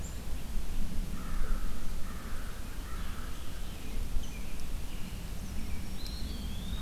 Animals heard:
American Crow (Corvus brachyrhynchos)
American Robin (Turdus migratorius)
Eastern Wood-Pewee (Contopus virens)

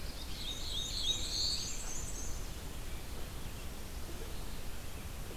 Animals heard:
Black-throated Blue Warbler (Setophaga caerulescens)
Black-and-white Warbler (Mniotilta varia)

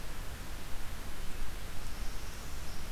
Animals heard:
Northern Parula (Setophaga americana)

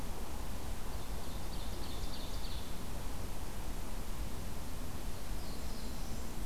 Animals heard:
Ovenbird (Seiurus aurocapilla)
Black-throated Blue Warbler (Setophaga caerulescens)

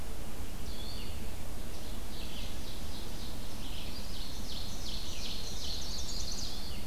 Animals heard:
Ovenbird (Seiurus aurocapilla)
Red-eyed Vireo (Vireo olivaceus)
Chestnut-sided Warbler (Setophaga pensylvanica)

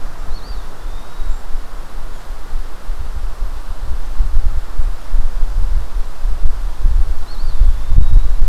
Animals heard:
Eastern Wood-Pewee (Contopus virens)

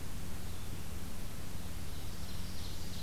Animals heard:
Ovenbird (Seiurus aurocapilla)
Northern Parula (Setophaga americana)

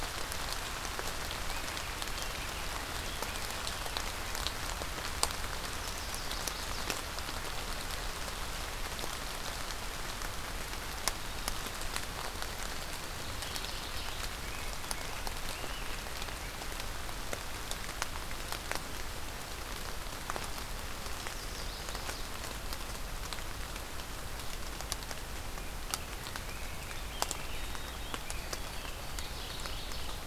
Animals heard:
Chestnut-sided Warbler (Setophaga pensylvanica)
Mourning Warbler (Geothlypis philadelphia)
White-throated Sparrow (Zonotrichia albicollis)
Scarlet Tanager (Piranga olivacea)

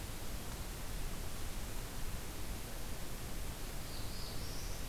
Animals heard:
Black-throated Blue Warbler (Setophaga caerulescens)

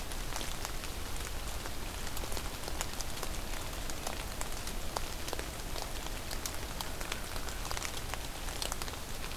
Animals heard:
American Crow (Corvus brachyrhynchos)

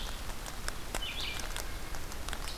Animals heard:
Red-eyed Vireo (Vireo olivaceus)

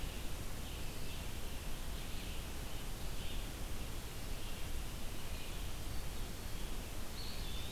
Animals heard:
Red-eyed Vireo (Vireo olivaceus)
Eastern Wood-Pewee (Contopus virens)
Blackburnian Warbler (Setophaga fusca)

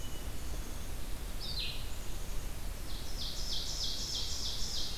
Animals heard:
Black-capped Chickadee (Poecile atricapillus)
Red-eyed Vireo (Vireo olivaceus)
Ovenbird (Seiurus aurocapilla)

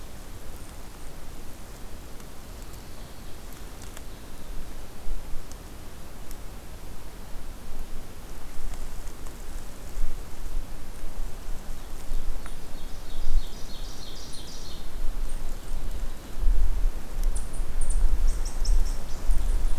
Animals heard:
Ovenbird (Seiurus aurocapilla)
Eastern Chipmunk (Tamias striatus)

